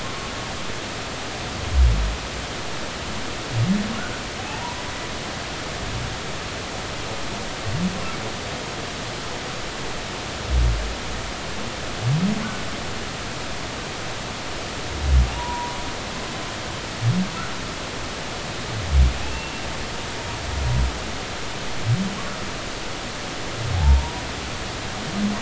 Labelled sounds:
0.0	0.3	humpback whale, 1.0 to 1.2 kHz
4.4	4.8	humpback whale, 0.80 to 1.0 kHz
15.3	15.8	humpback whale, 0.90 to 1.0 kHz
19.2	19.6	humpback whale, 2.5 to 2.8 kHz
23.7	24.2	humpback whale, 0.80 to 1.0 kHz

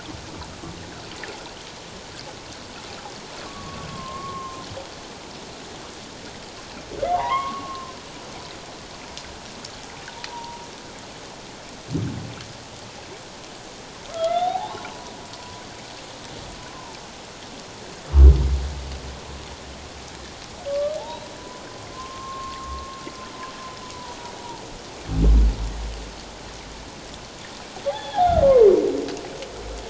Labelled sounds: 3.4	4.6	humpback whale, 1.0 to 1.2 kHz
7.1	7.9	humpback whale, 0.78 to 2.2 kHz
10.3	10.6	humpback whale, 0.84 to 1.0 kHz
14.1	14.9	humpback whale, 0.78 to 3.9 kHz
16.7	17.0	humpback whale, 0.84 to 1.1 kHz
20.7	21.2	humpback whale, 0.78 to 1.2 kHz
21.9	23.0	humpback whale, 0.97 to 1.1 kHz
24.4	24.6	humpback whale, 0.81 to 1.0 kHz
27.9	28.5	humpback whale, 0.78 to 3.5 kHz

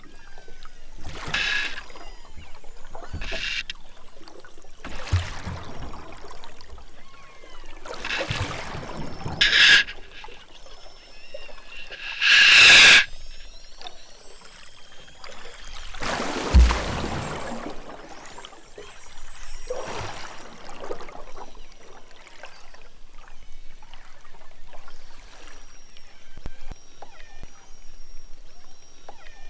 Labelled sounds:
0.0	0.9	killer whale, southern Alaska resident, 1.1 to 7.8 kHz
1.8	2.4	killer whale, southern Alaska resident, 0.97 to 6.2 kHz
2.9	3.2	killer whale, southern Alaska resident, 2.0 to 5.2 kHz
4.3	4.8	killer whale, southern Alaska resident, 0.74 to 4.6 kHz
5.6	6.2	killer whale, southern Alaska resident, 2.3 to 6.8 kHz
6.9	7.8	killer whale, southern Alaska resident, 0.42 to 6.0 kHz
8.6	9.4	killer whale, southern Alaska resident, 3.2 to 6.1 kHz
10.6	11.7	killer whale, southern Alaska resident, 1.1 to 8.0 kHz
13.1	15.9	killer whale, southern Alaska resident, 2.9 to 8.0 kHz
18.0	19.6	killer whale, southern Alaska resident, 0.42 to 8.0 kHz
21.2	21.7	killer whale, southern Alaska resident, 2.2 to 6.3 kHz
23.1	24.0	killer whale, southern Alaska resident, 1.8 to 7.0 kHz
25.2	29.4	killer whale, southern Alaska resident, 1.1 to 6.2 kHz

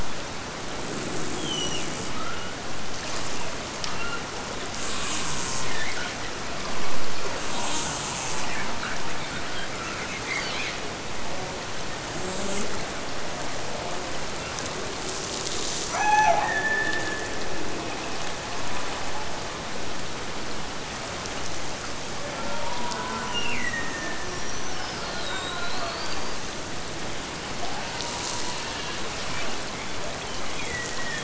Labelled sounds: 15.9	17.6	killer whale, Bigg's (transient), Gulf of Alaska transient, 0.17 to 6.3 kHz
23.3	24.6	killer whale, Bigg's (transient), Gulf of Alaska transient, 1.5 to 3.0 kHz
30.1	31.2	killer whale, Bigg's (transient), Gulf of Alaska transient, 1.5 to 3.5 kHz

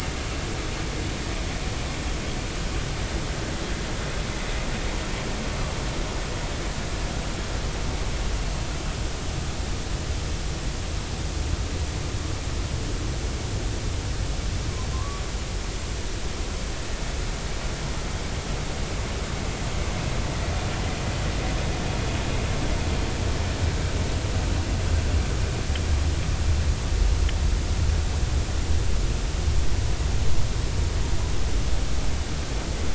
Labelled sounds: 14.9	15.2	humpback whale, 0.93 to 1.2 kHz

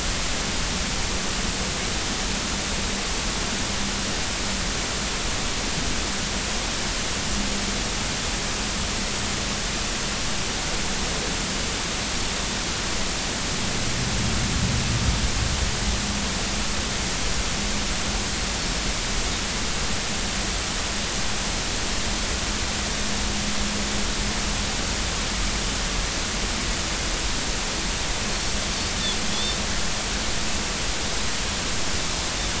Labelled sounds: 29.3	29.6	Pacific white-sided dolphin, 3.3 to 3.6 kHz

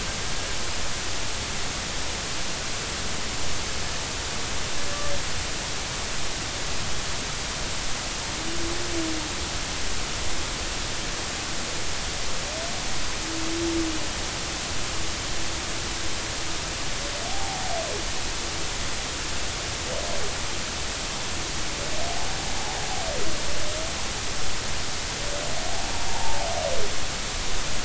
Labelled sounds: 17.3	17.7	humpback whale, 0.80 to 0.93 kHz
26.1	26.4	humpback whale, 0.80 to 0.96 kHz

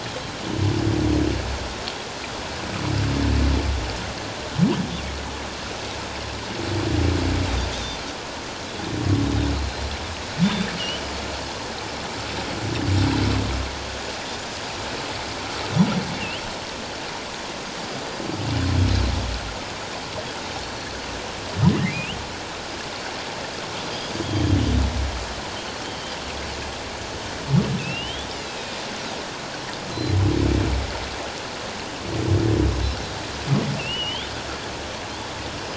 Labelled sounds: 7.7	8.0	Pacific white-sided dolphin, 3.4 to 6.2 kHz
9.5	10.7	Pacific white-sided dolphin, 3.4 to 4.3 kHz
21.8	22.2	humpback whale, 1.8 to 3.3 kHz
24.2	24.5	Pacific white-sided dolphin, 3.1 to 3.3 kHz
25.8	26.1	Pacific white-sided dolphin, 3.1 to 3.3 kHz
27.8	28.4	humpback whale, 2.5 to 3.8 kHz
28.5	28.8	Pacific white-sided dolphin, 2.4 to 2.7 kHz
29.9	30.2	Pacific white-sided dolphin, 4.0 to 4.2 kHz
33.8	34.3	humpback whale, 2.5 to 3.7 kHz

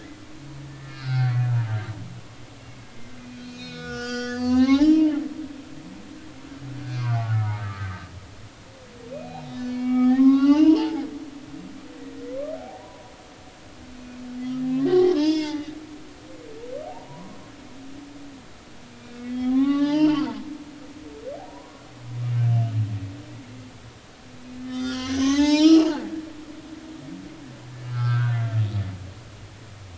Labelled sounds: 0.7	1.4	humpback whale, 1.2 to 5.4 kHz
3.3	5.3	humpback whale, 0.80 to 7.1 kHz
6.9	7.9	humpback whale, 1.1 to 2.5 kHz
9.1	11.1	humpback whale, 0.80 to 5.4 kHz
12.7	13.1	humpback whale, 0.90 to 1.0 kHz
14.8	15.8	humpback whale, 0.83 to 6.0 kHz
16.9	17.4	humpback whale, 0.80 to 1.2 kHz
18.9	20.3	humpback whale, 0.80 to 5.0 kHz
21.4	21.8	humpback whale, 0.90 to 1.1 kHz
24.6	26.6	humpback whale, 0.80 to 7.9 kHz
27.9	28.4	humpback whale, 1.1 to 1.7 kHz

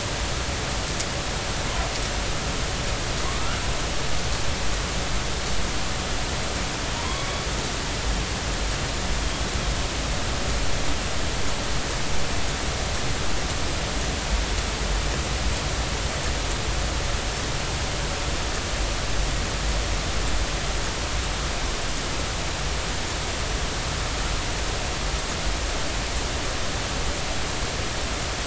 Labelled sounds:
3.3	3.6	killer whale, northern resident, A clan, AB subclan, 0.96 to 1.5 kHz
6.9	7.3	killer whale, northern resident, A clan, AB subclan, 0.90 to 1.2 kHz

